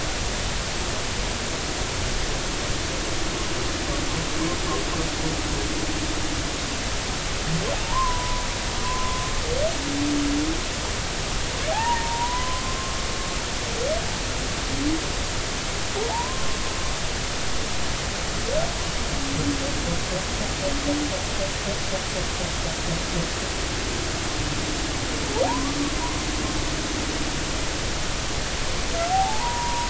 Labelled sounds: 7.8	9.2	humpback whale, 0.86 to 1.2 kHz
11.7	13.0	humpback whale, 0.80 to 1.2 kHz
16.1	16.6	humpback whale, 0.80 to 1.2 kHz
25.4	25.8	humpback whale, 0.80 to 1.2 kHz
29.1	29.8	humpback whale, 0.80 to 1.1 kHz

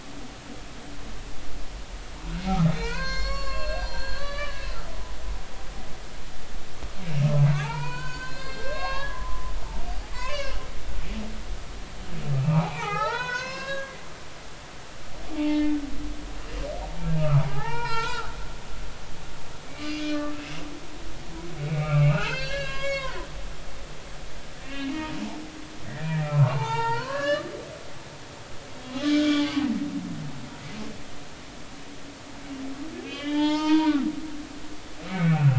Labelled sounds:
2.7	4.7	humpback whale, 0.86 to 7.2 kHz
7.2	9.5	humpback whale, 0.83 to 6.8 kHz
10.1	10.6	humpback whale, 0.93 to 5.3 kHz
12.4	13.9	humpback whale, 0.80 to 5.4 kHz
15.3	15.7	humpback whale, 0.83 to 3.0 kHz
17.2	18.3	humpback whale, 0.80 to 4.0 kHz
19.7	20.3	humpback whale, 1.4 to 6.1 kHz
21.6	24.9	humpback whale, 0.93 to 5.9 kHz
25.9	27.5	humpback whale, 0.80 to 4.8 kHz
28.9	29.5	humpback whale, 1.1 to 3.6 kHz
33.0	34.1	humpback whale, 0.83 to 5.3 kHz
35.1	35.5	humpback whale, 1.3 to 2.7 kHz

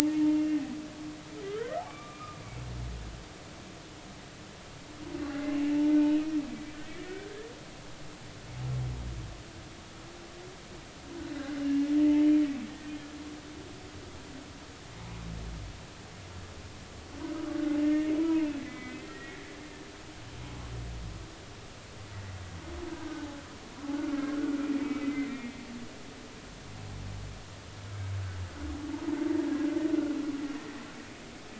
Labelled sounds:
0.2	0.6	humpback whale, 2.7 to 2.8 kHz
1.0	2.4	humpback whale, 0.83 to 2.5 kHz
5.9	7.3	humpback whale, 1.4 to 2.6 kHz
11.6	12.2	humpback whale, 0.83 to 2.9 kHz
17.8	19.5	humpback whale, 0.86 to 2.9 kHz
22.9	23.3	humpback whale, 1.4 to 1.7 kHz
24.8	25.6	humpback whale, 1.8 to 2.4 kHz
26.0	26.3	humpback whale, 2.0 to 2.1 kHz

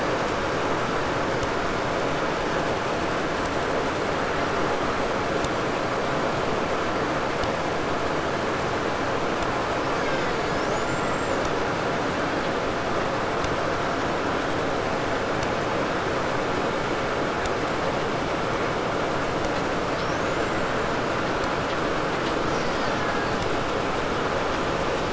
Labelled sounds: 9.7	11.6	killer whale, Bigg's (transient), 0.42 to 7.9 kHz
19.8	21.2	killer whale, 0.97 to 7.7 kHz
21.9	23.9	killer whale, Bigg's (transient), 0.97 to 8.0 kHz

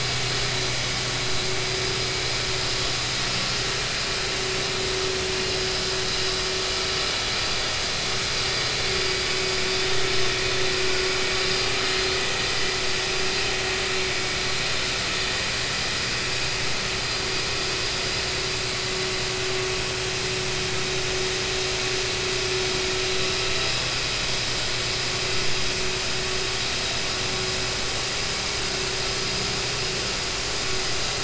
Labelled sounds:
14.2	14.4	vessel noise, 2.2 to 2.3 kHz

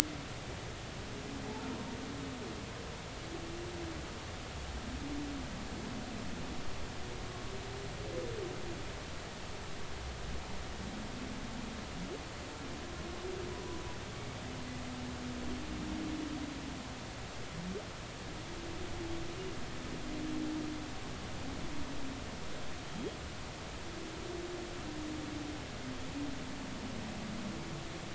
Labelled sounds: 1.5	1.7	humpback whale, 0.80 to 0.93 kHz

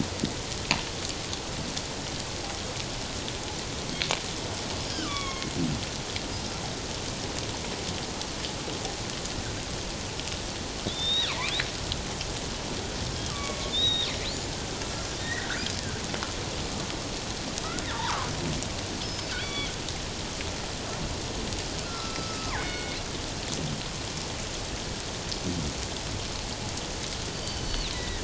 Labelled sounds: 4.9	5.5	killer whale, northern resident, G clan, 1.0 to 3.5 kHz
10.8	11.5	killer whale, northern resident, G clan, 1.9 to 5.8 kHz
13.3	14.1	killer whale, northern resident, G clan, 1.1 to 5.8 kHz
15.2	15.6	killer whale, northern resident, G clan, 1.3 to 2.0 kHz
17.9	18.3	killer whale, northern resident, G clan, 0.84 to 1.4 kHz
19.0	19.7	killer whale, northern resident, G clan, 2.1 to 5.3 kHz
21.8	23.0	killer whale, northern resident, G clan, 0.81 to 4.4 kHz
27.3	28.2	killer whale, northern resident, G clan, 1.7 to 4.7 kHz

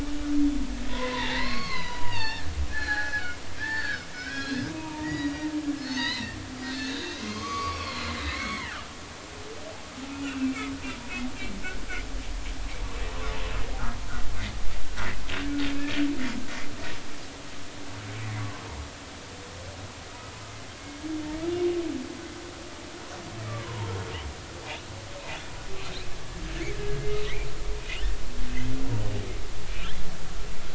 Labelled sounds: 0.9	5.5	humpback whale, 0.80 to 6.8 kHz
5.9	8.8	humpback whale, 0.90 to 6.4 kHz
10.1	10.7	humpback whale, 1.3 to 3.0 kHz
18.4	18.6	humpback whale, 0.96 to 1.2 kHz
23.4	23.9	humpback whale, 0.86 to 1.3 kHz

